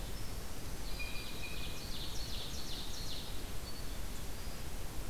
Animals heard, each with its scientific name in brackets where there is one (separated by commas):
Ovenbird (Seiurus aurocapilla), Blue Jay (Cyanocitta cristata)